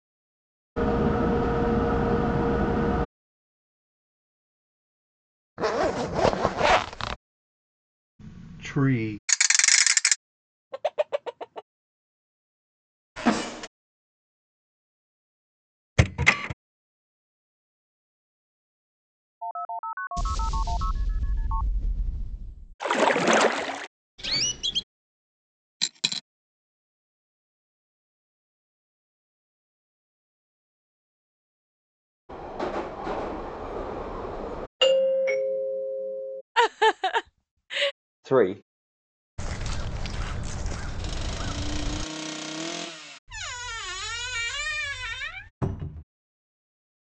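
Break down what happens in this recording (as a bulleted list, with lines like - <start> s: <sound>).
0:00-0:30
- 0.8 s: the sound of a train
- 5.6 s: a zipper is audible
- 8.7 s: a voice says "tree"
- 9.3 s: there is a ratchet
- 10.7 s: you can hear a chicken
- 13.2 s: a door opens
- 16.0 s: the sound of a printer
- 19.4 s: a telephone is audible
- 20.2 s: there is a boom
- 22.8 s: you can hear splashing
- 24.2 s: chirping is audible
- 25.8 s: a coin drops
0:30-0:47
- 32.3 s: a subway can be heard
- 34.8 s: you can hear a doorbell
- 36.5 s: someone chuckles
- 38.3 s: a voice says "three"
- 39.4 s: a bird is audible
- 41.0 s: an engine accelerates
- 43.3 s: squeaking is heard
- 45.6 s: a cupboard opens or closes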